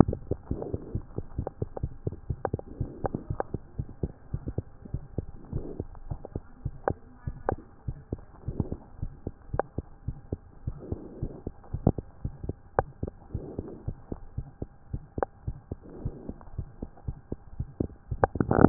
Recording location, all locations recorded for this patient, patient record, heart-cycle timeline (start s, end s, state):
mitral valve (MV)
aortic valve (AV)+pulmonary valve (PV)+tricuspid valve (TV)+mitral valve (MV)
#Age: Infant
#Sex: Male
#Height: 68.0 cm
#Weight: 7.0 kg
#Pregnancy status: False
#Murmur: Present
#Murmur locations: pulmonary valve (PV)+tricuspid valve (TV)
#Most audible location: pulmonary valve (PV)
#Systolic murmur timing: Early-systolic
#Systolic murmur shape: Plateau
#Systolic murmur grading: I/VI
#Systolic murmur pitch: Low
#Systolic murmur quality: Blowing
#Diastolic murmur timing: nan
#Diastolic murmur shape: nan
#Diastolic murmur grading: nan
#Diastolic murmur pitch: nan
#Diastolic murmur quality: nan
#Outcome: Abnormal
#Campaign: 2015 screening campaign
0.00	3.64	unannotated
3.64	3.76	diastole
3.76	3.90	S1
3.90	4.00	systole
4.00	4.12	S2
4.12	4.30	diastole
4.30	4.42	S1
4.42	4.56	systole
4.56	4.68	S2
4.68	4.90	diastole
4.90	5.02	S1
5.02	5.14	systole
5.14	5.26	S2
5.26	5.48	diastole
5.48	5.66	S1
5.66	5.76	systole
5.76	5.88	S2
5.88	6.04	diastole
6.04	6.18	S1
6.18	6.32	systole
6.32	6.42	S2
6.42	6.62	diastole
6.62	6.76	S1
6.76	6.88	systole
6.88	7.00	S2
7.00	7.24	diastole
7.24	7.38	S1
7.38	7.50	systole
7.50	7.64	S2
7.64	7.86	diastole
7.86	7.98	S1
7.98	8.12	systole
8.12	8.24	S2
8.24	8.44	diastole
8.44	8.58	S1
8.58	8.68	systole
8.68	8.78	S2
8.78	9.00	diastole
9.00	9.14	S1
9.14	9.24	systole
9.24	9.34	S2
9.34	9.52	diastole
9.52	9.64	S1
9.64	9.76	systole
9.76	9.86	S2
9.86	10.06	diastole
10.06	10.16	S1
10.16	10.28	systole
10.28	10.40	S2
10.40	10.64	diastole
10.64	10.78	S1
10.78	10.90	systole
10.90	11.00	S2
11.00	11.20	diastole
11.20	11.32	S1
11.32	11.44	systole
11.44	11.54	S2
11.54	11.72	diastole
11.72	11.82	S1
11.82	11.93	systole
11.93	12.04	S2
12.04	12.22	diastole
12.22	12.34	S1
12.34	12.42	systole
12.42	12.58	S2
12.58	12.76	diastole
12.76	12.88	S1
12.88	13.02	systole
13.02	13.16	S2
13.16	13.34	diastole
13.34	13.48	S1
13.48	13.58	systole
13.58	13.68	S2
13.68	13.86	diastole
13.86	13.96	S1
13.96	14.10	systole
14.10	14.20	S2
14.20	14.36	diastole
14.36	14.48	S1
14.48	14.62	systole
14.62	14.72	S2
14.72	14.92	diastole
14.92	15.04	S1
15.04	15.16	systole
15.16	15.28	S2
15.28	15.46	diastole
15.46	15.58	S1
15.58	15.70	systole
15.70	15.80	S2
15.80	16.02	diastole
16.02	16.16	S1
16.16	16.28	systole
16.28	16.38	S2
16.38	16.56	diastole
16.56	16.68	S1
16.68	16.82	systole
16.82	16.92	S2
16.92	17.06	diastole
17.06	17.18	S1
17.18	17.32	systole
17.32	17.42	S2
17.42	17.58	diastole
17.58	17.70	S1
17.70	18.69	unannotated